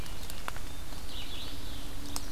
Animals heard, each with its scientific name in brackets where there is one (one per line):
Red-eyed Vireo (Vireo olivaceus)
Mourning Warbler (Geothlypis philadelphia)